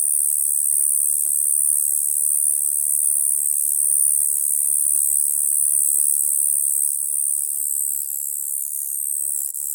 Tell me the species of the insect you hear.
Bradyporus oniscus